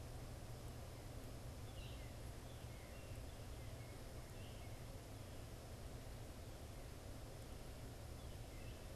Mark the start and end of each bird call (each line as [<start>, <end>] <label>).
[0.00, 8.95] Gray Catbird (Dumetella carolinensis)
[0.00, 8.95] Northern Cardinal (Cardinalis cardinalis)